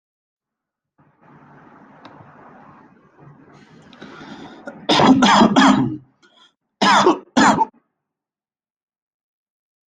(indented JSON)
{
  "expert_labels": [
    {
      "quality": "good",
      "cough_type": "dry",
      "dyspnea": false,
      "wheezing": false,
      "stridor": false,
      "choking": false,
      "congestion": false,
      "nothing": true,
      "diagnosis": "upper respiratory tract infection",
      "severity": "mild"
    }
  ],
  "age": 36,
  "gender": "male",
  "respiratory_condition": false,
  "fever_muscle_pain": false,
  "status": "symptomatic"
}